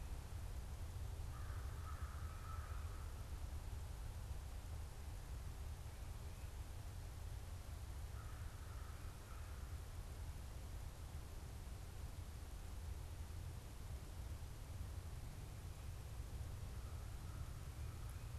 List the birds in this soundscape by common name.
American Crow